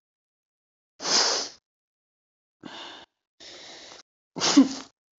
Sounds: Sneeze